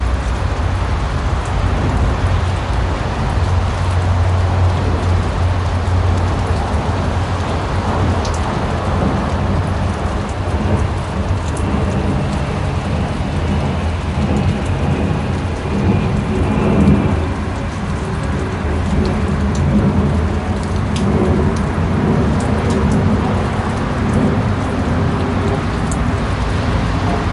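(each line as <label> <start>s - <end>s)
An airplane flies overhead. 0.0s - 27.3s
Raindrops trickling subtly. 0.0s - 27.3s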